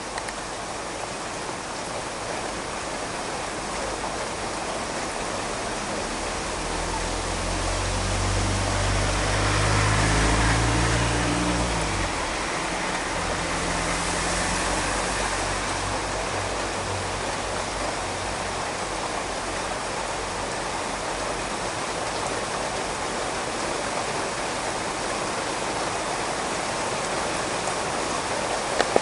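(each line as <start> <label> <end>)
0.0 Heavy rain falls steadily. 6.5
6.6 Heavy rain with a car passing by faintly. 29.0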